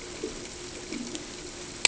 {"label": "ambient", "recorder": "HydroMoth"}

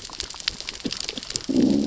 {"label": "biophony, growl", "recorder": "SoundTrap 600 or HydroMoth"}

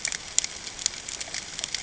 {"label": "ambient", "recorder": "HydroMoth"}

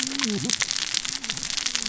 {"label": "biophony, cascading saw", "recorder": "SoundTrap 600 or HydroMoth"}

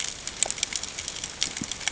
{"label": "ambient", "recorder": "HydroMoth"}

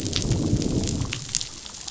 {"label": "biophony, growl", "recorder": "SoundTrap 500"}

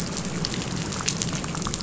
{"label": "biophony", "recorder": "SoundTrap 500"}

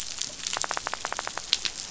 {"label": "biophony, rattle", "recorder": "SoundTrap 500"}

